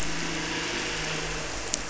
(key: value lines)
label: anthrophony, boat engine
recorder: SoundTrap 300